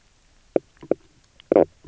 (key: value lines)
label: biophony, knock croak
recorder: SoundTrap 300